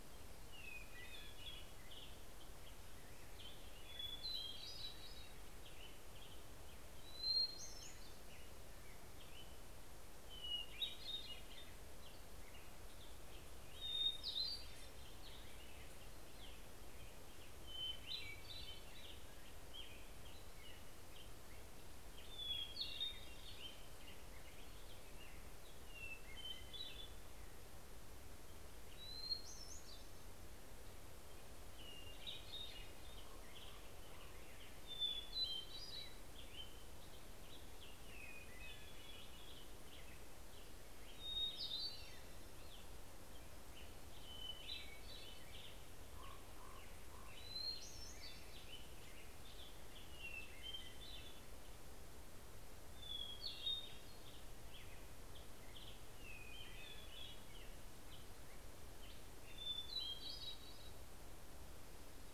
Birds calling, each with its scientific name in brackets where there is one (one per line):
Hermit Thrush (Catharus guttatus)
Black-headed Grosbeak (Pheucticus melanocephalus)
Common Raven (Corvus corax)